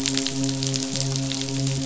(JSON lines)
{"label": "biophony, midshipman", "recorder": "SoundTrap 500"}